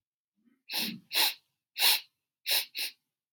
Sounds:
Sniff